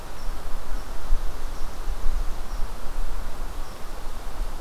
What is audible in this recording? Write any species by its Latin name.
Tamiasciurus hudsonicus